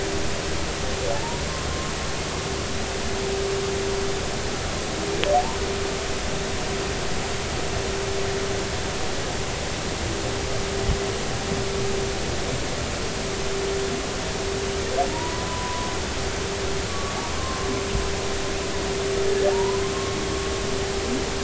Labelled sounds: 1.1	1.4	humpback whale, 0.80 to 0.99 kHz
15.1	15.9	humpback whale, 0.90 to 1.1 kHz
16.9	17.1	humpback whale, 1.1 to 1.2 kHz
18.3	20.2	humpback whale, 0.86 to 1.2 kHz

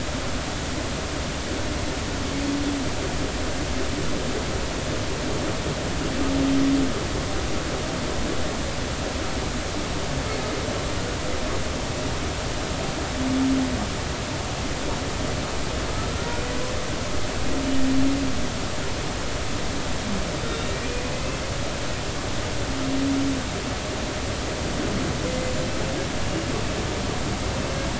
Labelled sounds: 16.1	16.4	humpback whale, 1.3 to 1.5 kHz
25.3	25.5	humpback whale, 2.0 to 2.2 kHz

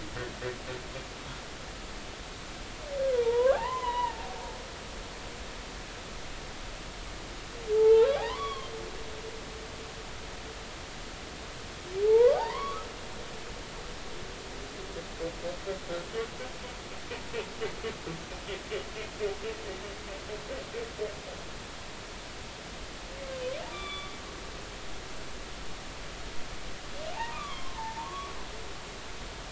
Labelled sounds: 3.1	4.2	humpback whale, 0.80 to 4.1 kHz
7.7	8.7	humpback whale, 0.80 to 3.5 kHz
12.0	12.9	humpback whale, 0.80 to 3.5 kHz
23.7	24.1	humpback whale, 1.1 to 3.6 kHz
27.1	28.3	humpback whale, 0.80 to 3.5 kHz

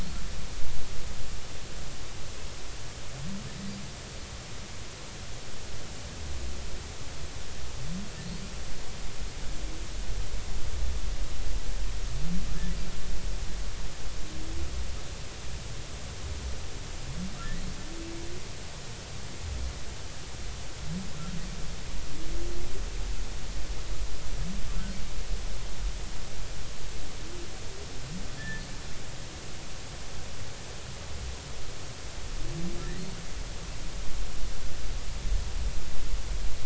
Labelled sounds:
28.4	28.6	humpback whale, 1.7 to 1.8 kHz

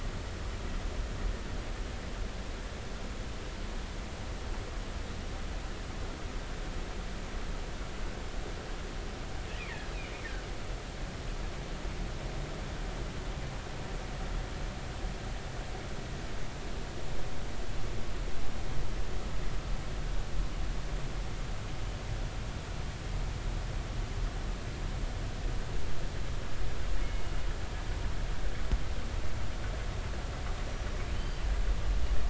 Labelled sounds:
27.0	27.3	killer whale, northern resident, G clan, call N24ii, 2.1 to 2.2 kHz
31.1	31.4	killer whale, northern resident, G clan, call N23i, 3.0 to 4.8 kHz

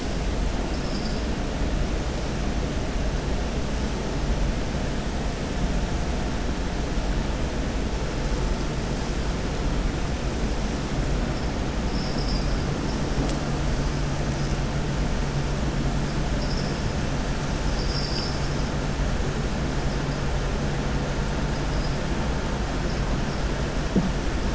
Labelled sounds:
17.6	18.5	vessel noise, 2.8 to 6.1 kHz

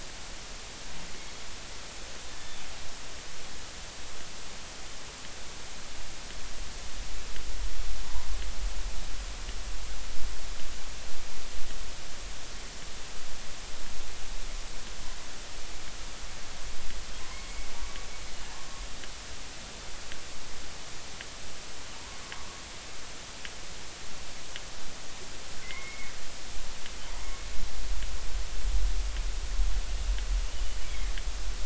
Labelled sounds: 17.2	17.7	killer whale, northern resident, G clan, call N23i, 0.96 to 2.3 kHz
25.6	26.1	killer whale, northern resident, G clan, call N23i, 1.9 to 2.2 kHz
30.8	31.1	killer whale, northern resident, G clan, GG subclan, call N23ii, 2.0 to 2.4 kHz

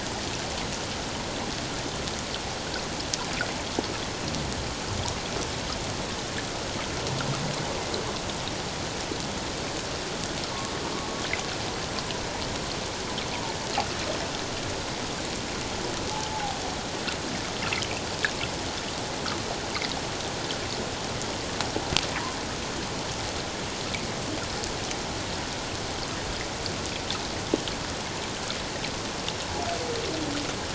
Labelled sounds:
16.3	16.6	humpback whale, 0.78 to 0.91 kHz

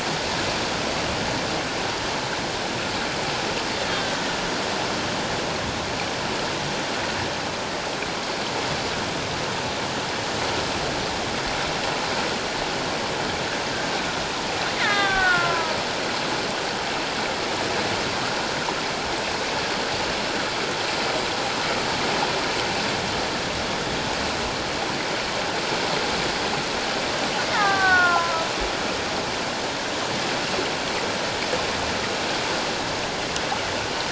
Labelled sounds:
14.8	15.8	killer whale, Bigg's (transient), 0.78 to 3.8 kHz
27.5	28.5	killer whale, Bigg's (transient), 0.78 to 2.2 kHz

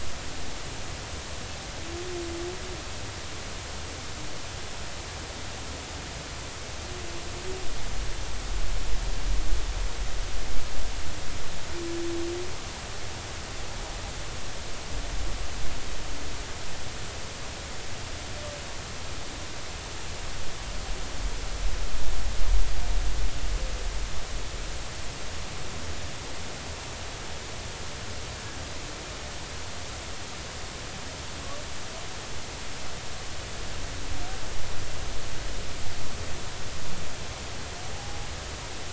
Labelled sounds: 37.9	38.3	humpback whale, 0.80 to 0.90 kHz

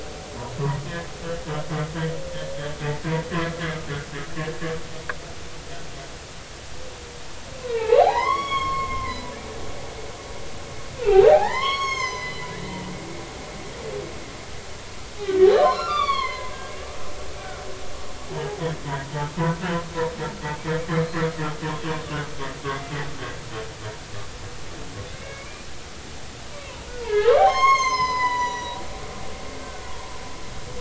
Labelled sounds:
3.4	3.6	humpback whale, 1.3 to 1.4 kHz
7.6	9.2	humpback whale, 0.80 to 6.7 kHz
11.0	12.5	humpback whale, 0.80 to 6.6 kHz
15.2	18.6	humpback whale, 0.80 to 5.5 kHz
25.1	25.5	humpback whale, 2.0 to 2.3 kHz
27.0	28.8	humpback whale, 0.80 to 7.6 kHz
29.6	29.9	humpback whale, 1.4 to 1.6 kHz

